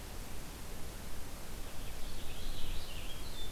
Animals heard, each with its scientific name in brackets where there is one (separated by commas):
Purple Finch (Haemorhous purpureus)